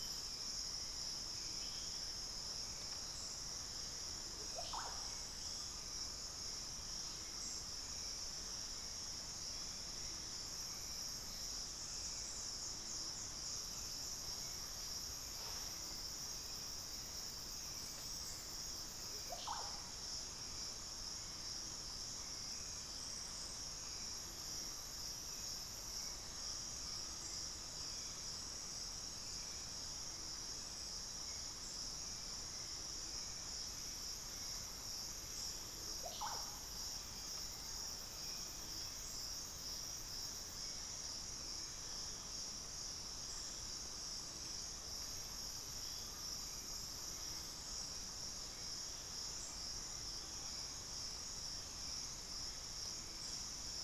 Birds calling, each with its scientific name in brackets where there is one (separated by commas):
Undulated Tinamou (Crypturellus undulatus), unidentified bird, Hauxwell's Thrush (Turdus hauxwelli), Russet-backed Oropendola (Psarocolius angustifrons), Spix's Guan (Penelope jacquacu)